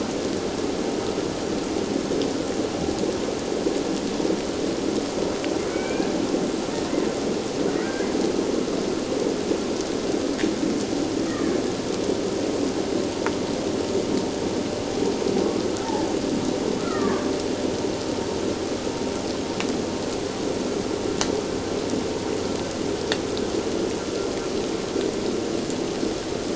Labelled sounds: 5.7	6.1	killer whale, Bigg's (transient), 1.4 to 2.5 kHz
7.8	8.1	killer whale, Bigg's (transient), 1.4 to 1.8 kHz
16.8	17.3	killer whale, Bigg's (transient), 1.0 to 2.0 kHz

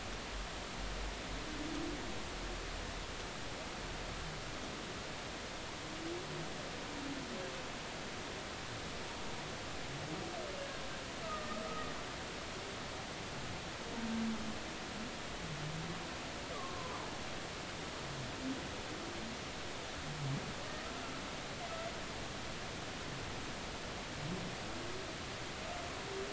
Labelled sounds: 11.2	11.5	humpback whale, 1.2 to 1.3 kHz
16.5	17.0	humpback whale, 0.96 to 1.3 kHz

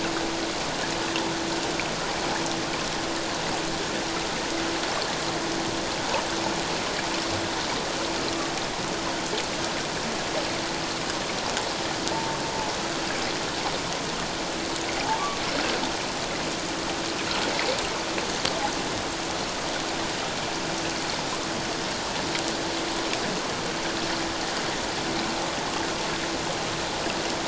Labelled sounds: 12.1	12.4	humpback whale, 0.84 to 0.94 kHz

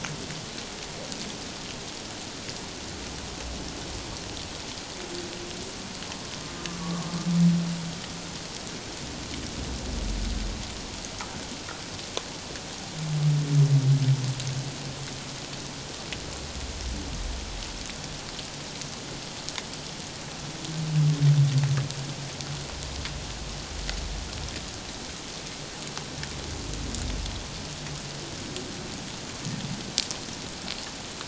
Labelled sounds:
6.8	7.1	humpback whale, 1.0 to 1.2 kHz

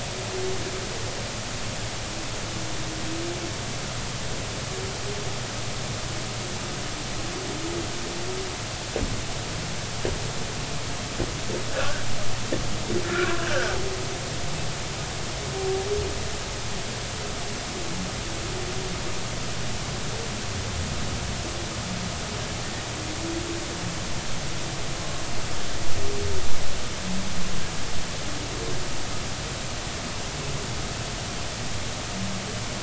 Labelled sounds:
11.7	12.1	humpback whale, 1.3 to 1.7 kHz
13.0	13.8	humpback whale, 1.3 to 1.8 kHz

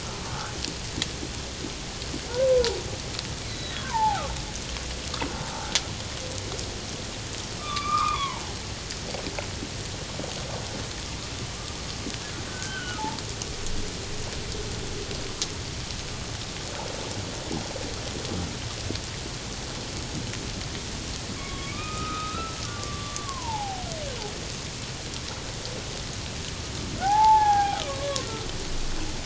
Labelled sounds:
0.3	0.5	humpback whale, 1.1 to 1.6 kHz
2.5	2.8	humpback whale, 0.78 to 1.1 kHz
3.5	4.2	humpback whale, 0.78 to 4.1 kHz
7.6	8.4	humpback whale, 0.84 to 2.6 kHz
12.5	13.2	humpback whale, 0.81 to 1.6 kHz
21.4	23.9	humpback whale, 0.78 to 2.6 kHz
27.0	28.3	humpback whale, 0.78 to 1.8 kHz

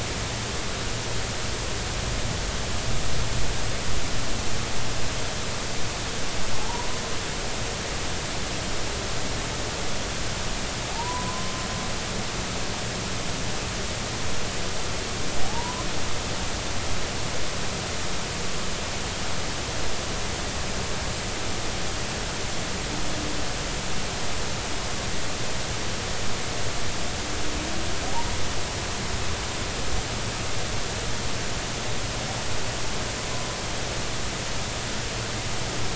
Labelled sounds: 6.6	6.9	humpback whale, 0.80 to 1.0 kHz
10.9	11.5	humpback whale, 0.80 to 1.1 kHz
15.4	15.9	humpback whale, 0.80 to 1.1 kHz

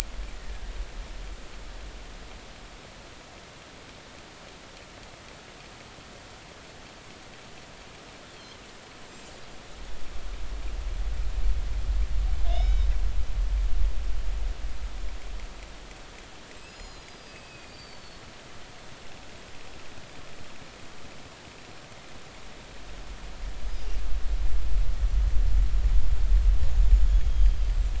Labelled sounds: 12.5	12.9	killer whale, northern resident, G clan, call N40, 2.1 to 5.4 kHz
16.6	18.2	killer whale, northern resident, G clan, 2.4 to 7.1 kHz
26.9	27.9	killer whale, northern resident, G clan, 3.2 to 7.7 kHz

